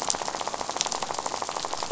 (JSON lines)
{"label": "biophony, rattle", "recorder": "SoundTrap 500"}